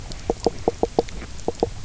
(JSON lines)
{"label": "biophony, knock croak", "recorder": "SoundTrap 300"}